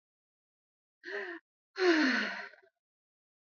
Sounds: Sigh